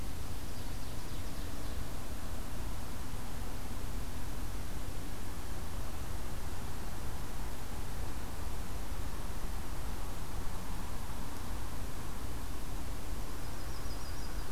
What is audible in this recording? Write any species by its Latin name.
Seiurus aurocapilla, Setophaga coronata